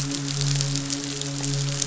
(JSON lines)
{"label": "biophony, midshipman", "recorder": "SoundTrap 500"}